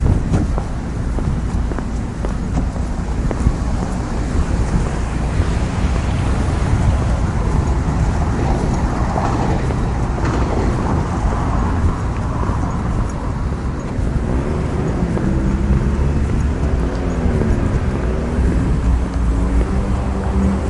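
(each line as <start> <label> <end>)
0.0 Footsteps on heels walking outside loudly and clearly. 4.5
0.0 Engines of passing vehicles are muffled in the background. 20.7
4.5 Very faint, muffled footsteps on heels walking outside. 19.2
19.1 Footsteps on heels walking outside loudly and clearly. 20.7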